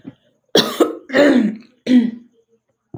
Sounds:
Throat clearing